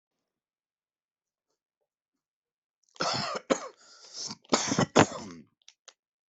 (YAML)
expert_labels:
- quality: ok
  cough_type: unknown
  dyspnea: false
  wheezing: false
  stridor: false
  choking: false
  congestion: false
  nothing: true
  diagnosis: upper respiratory tract infection
  severity: mild